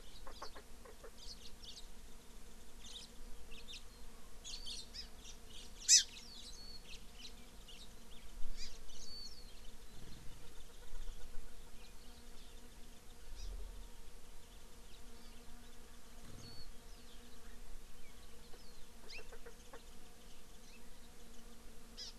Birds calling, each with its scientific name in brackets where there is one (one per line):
Chukar (Alectoris chukar)
House Finch (Haemorhous mexicanus)
Warbling White-eye (Zosterops japonicus)
Hawaii Amakihi (Chlorodrepanis virens)